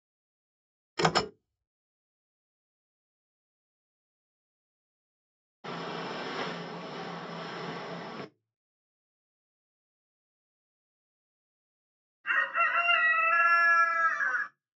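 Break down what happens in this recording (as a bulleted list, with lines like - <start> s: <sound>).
- 1.0 s: the sound of a typewriter
- 5.6 s: you can hear a boat
- 12.2 s: a chicken is audible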